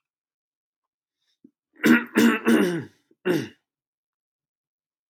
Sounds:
Throat clearing